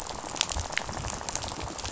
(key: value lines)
label: biophony, rattle
recorder: SoundTrap 500